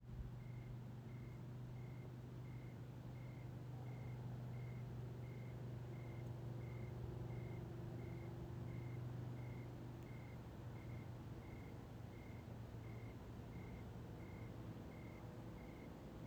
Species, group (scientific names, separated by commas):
Oecanthus rileyi, Orthoptera